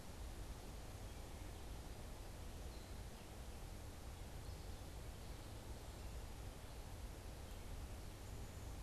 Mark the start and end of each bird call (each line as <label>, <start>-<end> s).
unidentified bird, 0.0-8.8 s